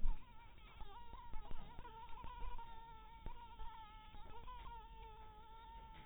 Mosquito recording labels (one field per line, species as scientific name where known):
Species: mosquito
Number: one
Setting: cup